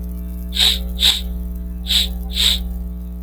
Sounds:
Sniff